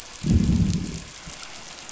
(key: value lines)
label: biophony, growl
recorder: SoundTrap 500